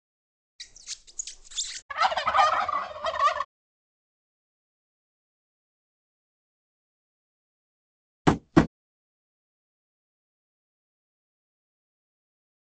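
At 0.58 seconds, squeaking is audible. Then, at 1.89 seconds, you can hear fowl. Finally, at 8.25 seconds, there is tapping.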